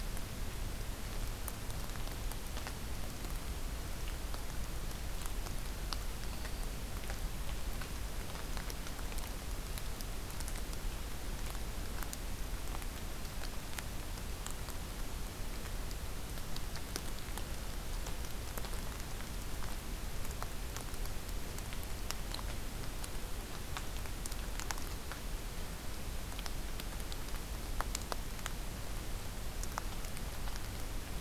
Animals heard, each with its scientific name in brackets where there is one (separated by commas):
Black-throated Green Warbler (Setophaga virens)